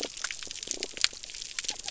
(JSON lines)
{"label": "biophony", "recorder": "SoundTrap 300"}